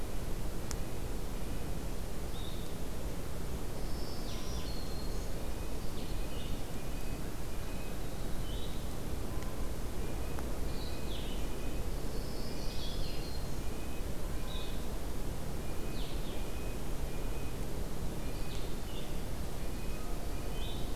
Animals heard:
Red-breasted Nuthatch (Sitta canadensis)
Blue-headed Vireo (Vireo solitarius)
Black-throated Green Warbler (Setophaga virens)
Yellow-rumped Warbler (Setophaga coronata)

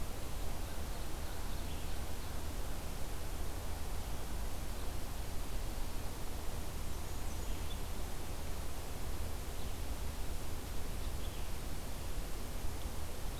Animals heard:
Blackburnian Warbler (Setophaga fusca)
Blue-headed Vireo (Vireo solitarius)
Ovenbird (Seiurus aurocapilla)

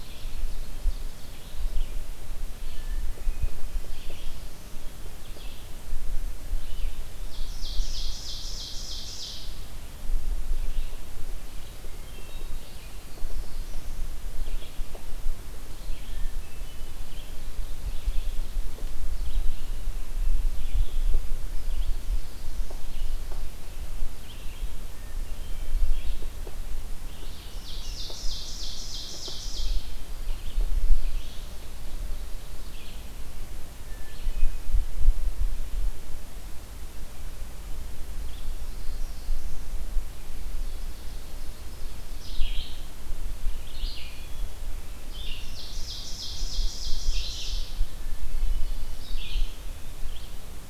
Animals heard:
Red-eyed Vireo (Vireo olivaceus)
Ovenbird (Seiurus aurocapilla)
Black-throated Blue Warbler (Setophaga caerulescens)
Hermit Thrush (Catharus guttatus)

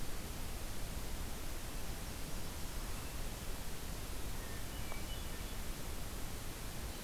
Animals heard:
Hermit Thrush (Catharus guttatus)

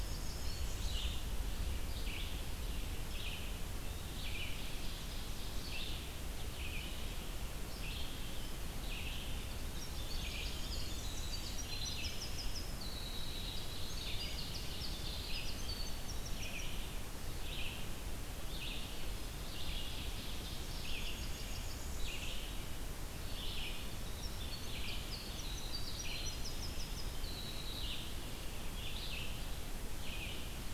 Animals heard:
Ovenbird (Seiurus aurocapilla)
Blackburnian Warbler (Setophaga fusca)
Winter Wren (Troglodytes hiemalis)
Red-eyed Vireo (Vireo olivaceus)

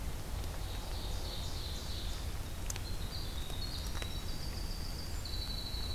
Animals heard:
Ovenbird (Seiurus aurocapilla)
Winter Wren (Troglodytes hiemalis)

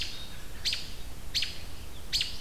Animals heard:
American Robin (Turdus migratorius)

